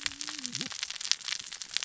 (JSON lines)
{"label": "biophony, cascading saw", "recorder": "SoundTrap 600 or HydroMoth"}